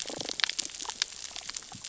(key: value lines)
label: biophony, damselfish
recorder: SoundTrap 600 or HydroMoth